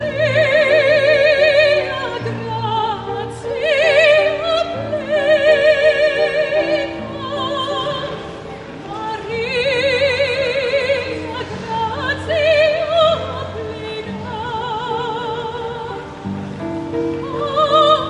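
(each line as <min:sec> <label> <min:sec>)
0:00.0 A piano plays melodically and steadily. 0:18.1
0:00.0 A woman is singing loudly and dramatically indoors. 0:18.1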